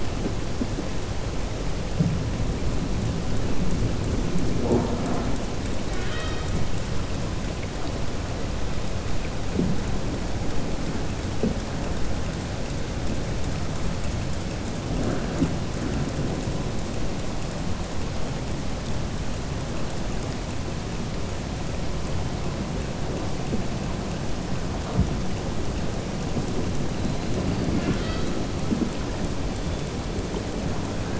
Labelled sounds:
5.8	6.5	killer whale, southern resident, 0.80 to 5.7 kHz

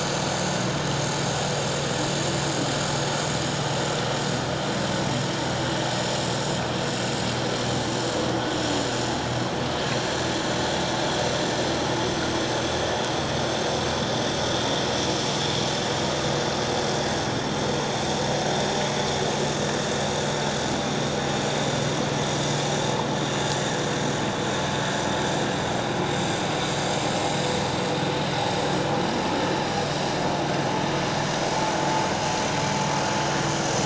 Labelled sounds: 23.5	23.8	vessel noise, 1.6 to 2.0 kHz

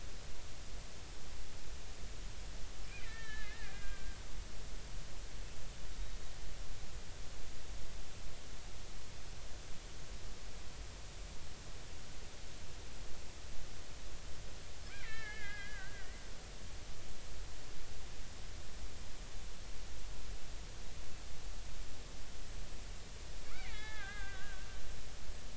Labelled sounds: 2.8	4.2	killer whale, Bigg's (transient), 1.3 to 3.2 kHz
14.9	16.2	killer whale, Bigg's (transient), 1.2 to 3.2 kHz
23.4	24.7	killer whale, Bigg's (transient), 1.1 to 3.5 kHz

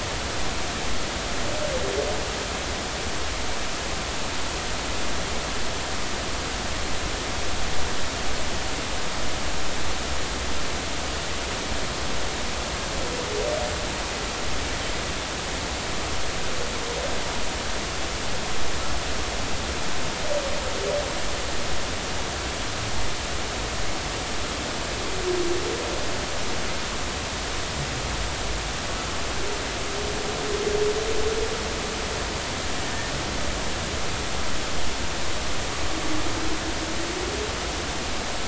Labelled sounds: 32.9	33.1	humpback whale, 1.8 to 1.9 kHz

